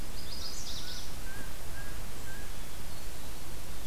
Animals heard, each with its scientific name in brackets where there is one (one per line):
Cooper's Hawk (Astur cooperii)
Chestnut-sided Warbler (Setophaga pensylvanica)
Hermit Thrush (Catharus guttatus)